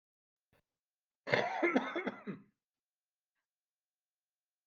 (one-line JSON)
{"expert_labels": [{"quality": "poor", "cough_type": "unknown", "dyspnea": false, "wheezing": false, "stridor": false, "choking": false, "congestion": false, "nothing": true, "diagnosis": "upper respiratory tract infection", "severity": "unknown"}], "age": 39, "gender": "male", "respiratory_condition": false, "fever_muscle_pain": false, "status": "COVID-19"}